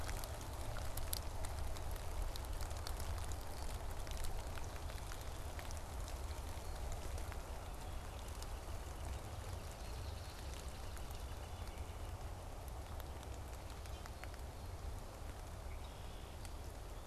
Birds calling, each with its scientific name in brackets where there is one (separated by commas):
Northern Flicker (Colaptes auratus), Red-winged Blackbird (Agelaius phoeniceus)